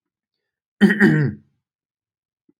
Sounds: Throat clearing